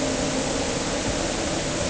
{"label": "anthrophony, boat engine", "recorder": "HydroMoth"}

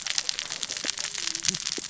{"label": "biophony, cascading saw", "recorder": "SoundTrap 600 or HydroMoth"}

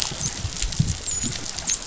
{"label": "biophony, dolphin", "recorder": "SoundTrap 500"}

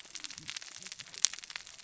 {"label": "biophony, cascading saw", "recorder": "SoundTrap 600 or HydroMoth"}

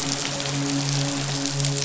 {"label": "biophony, midshipman", "recorder": "SoundTrap 500"}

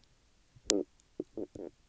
{"label": "biophony, stridulation", "recorder": "SoundTrap 300"}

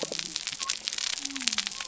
{"label": "biophony", "recorder": "SoundTrap 300"}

